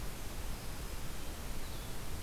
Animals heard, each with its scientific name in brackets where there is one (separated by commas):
Red-eyed Vireo (Vireo olivaceus), Black-throated Green Warbler (Setophaga virens)